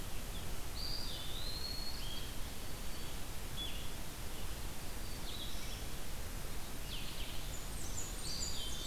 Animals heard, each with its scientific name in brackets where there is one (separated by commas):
Blue-headed Vireo (Vireo solitarius), Blackburnian Warbler (Setophaga fusca), Black-throated Green Warbler (Setophaga virens), Eastern Wood-Pewee (Contopus virens), Red-eyed Vireo (Vireo olivaceus)